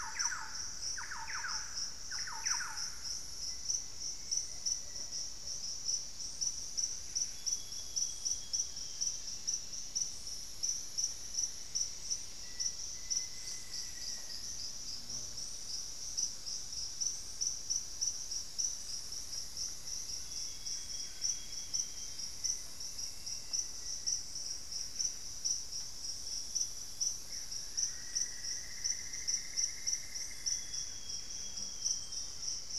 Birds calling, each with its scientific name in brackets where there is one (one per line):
Plumbeous Antbird (Myrmelastes hyperythrus)
Plumbeous Pigeon (Patagioenas plumbea)
Solitary Black Cacique (Cacicus solitarius)
Cinnamon-rumped Foliage-gleaner (Philydor pyrrhodes)
Black-faced Antthrush (Formicarius analis)
Amazonian Grosbeak (Cyanoloxia rothschildii)
Thrush-like Wren (Campylorhynchus turdinus)
Mealy Parrot (Amazona farinosa)
Cinnamon-throated Woodcreeper (Dendrexetastes rufigula)
Buff-breasted Wren (Cantorchilus leucotis)